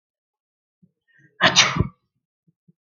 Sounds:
Sneeze